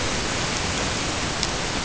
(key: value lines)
label: ambient
recorder: HydroMoth